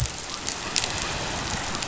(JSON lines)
{"label": "biophony", "recorder": "SoundTrap 500"}